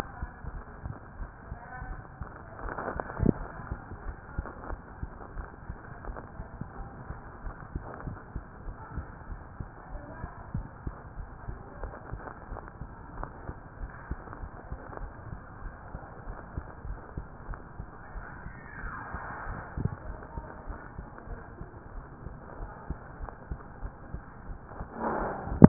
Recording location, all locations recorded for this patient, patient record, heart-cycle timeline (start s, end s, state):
mitral valve (MV)
aortic valve (AV)+pulmonary valve (PV)+tricuspid valve (TV)+mitral valve (MV)
#Age: Child
#Sex: Female
#Height: 153.0 cm
#Weight: 37.5 kg
#Pregnancy status: False
#Murmur: Absent
#Murmur locations: nan
#Most audible location: nan
#Systolic murmur timing: nan
#Systolic murmur shape: nan
#Systolic murmur grading: nan
#Systolic murmur pitch: nan
#Systolic murmur quality: nan
#Diastolic murmur timing: nan
#Diastolic murmur shape: nan
#Diastolic murmur grading: nan
#Diastolic murmur pitch: nan
#Diastolic murmur quality: nan
#Outcome: Normal
#Campaign: 2015 screening campaign
0.00	6.74	unannotated
6.74	6.90	S1
6.90	7.07	systole
7.07	7.20	S2
7.20	7.39	diastole
7.39	7.54	S1
7.54	7.71	systole
7.71	7.84	S2
7.84	8.04	diastole
8.04	8.18	S1
8.18	8.32	systole
8.32	8.44	S2
8.44	8.63	diastole
8.63	8.76	S1
8.76	8.94	systole
8.94	9.08	S2
9.08	9.26	diastole
9.26	9.40	S1
9.40	9.56	systole
9.56	9.70	S2
9.70	9.90	diastole
9.90	10.04	S1
10.04	10.20	systole
10.20	10.32	S2
10.32	10.54	diastole
10.54	10.68	S1
10.68	10.83	systole
10.83	10.96	S2
10.96	11.14	diastole
11.14	11.28	S1
11.28	11.45	systole
11.45	11.60	S2
11.60	11.80	diastole
11.80	11.92	S1
11.92	12.10	systole
12.10	12.22	S2
12.22	12.48	diastole
12.48	12.60	S1
12.60	12.79	systole
12.79	12.90	S2
12.90	13.14	diastole
13.14	13.28	S1
13.28	13.45	systole
13.45	13.58	S2
13.58	13.78	diastole
13.78	13.92	S1
13.92	14.07	systole
14.07	14.20	S2
14.20	14.40	diastole
14.40	14.52	S1
14.52	14.68	systole
14.68	14.80	S2
14.80	14.97	diastole
14.97	15.12	S1
15.12	15.28	systole
15.28	15.40	S2
15.40	15.62	diastole
15.62	15.74	S1
15.74	15.91	systole
15.91	16.04	S2
16.04	16.25	diastole
16.25	16.38	S1
16.38	16.54	systole
16.54	16.66	S2
16.66	16.84	diastole
16.84	17.00	S1
17.00	25.68	unannotated